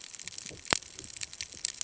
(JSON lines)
{"label": "ambient", "recorder": "HydroMoth"}